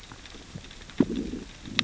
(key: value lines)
label: biophony, growl
recorder: SoundTrap 600 or HydroMoth